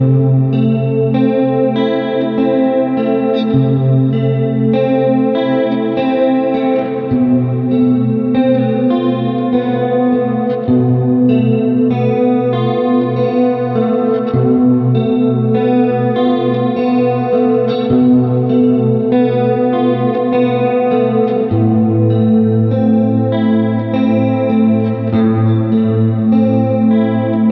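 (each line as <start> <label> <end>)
0.0 A slow melodic electronic guitar plays. 27.5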